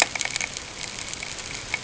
{"label": "ambient", "recorder": "HydroMoth"}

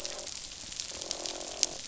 {"label": "biophony, croak", "recorder": "SoundTrap 500"}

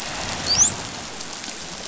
{"label": "biophony, dolphin", "recorder": "SoundTrap 500"}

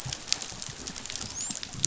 {"label": "biophony, dolphin", "recorder": "SoundTrap 500"}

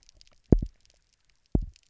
{"label": "biophony, double pulse", "recorder": "SoundTrap 300"}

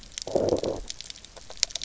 {"label": "biophony, low growl", "recorder": "SoundTrap 300"}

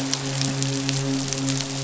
{"label": "biophony, midshipman", "recorder": "SoundTrap 500"}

